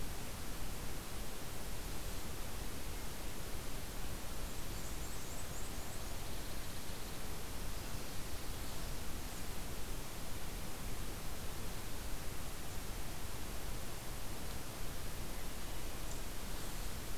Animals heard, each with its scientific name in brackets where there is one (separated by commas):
Blackburnian Warbler (Setophaga fusca), Pine Warbler (Setophaga pinus)